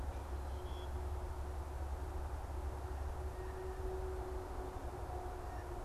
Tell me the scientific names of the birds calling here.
unidentified bird, Cyanocitta cristata